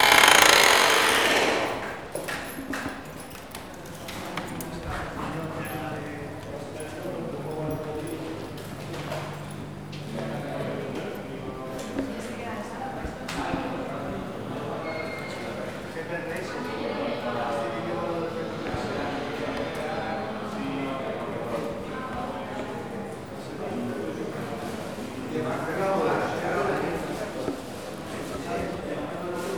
Is anyone here?
yes